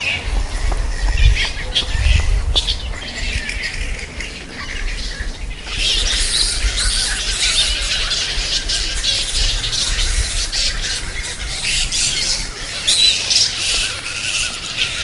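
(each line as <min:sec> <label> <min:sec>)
0:00.0 Continuous bird noises. 0:15.0
0:00.0 Light muffled wind in the background. 0:15.0
0:00.2 Muffled running sounds in the background. 0:03.5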